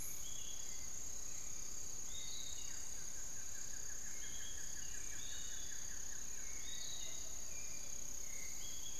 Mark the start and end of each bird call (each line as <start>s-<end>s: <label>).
0.0s-9.0s: Hauxwell's Thrush (Turdus hauxwelli)
0.0s-9.0s: Piratic Flycatcher (Legatus leucophaius)
2.5s-6.6s: Buff-throated Woodcreeper (Xiphorhynchus guttatus)
6.6s-8.9s: unidentified bird